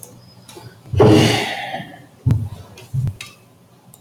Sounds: Sigh